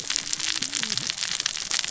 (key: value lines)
label: biophony, cascading saw
recorder: SoundTrap 600 or HydroMoth